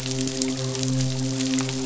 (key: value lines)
label: biophony, midshipman
recorder: SoundTrap 500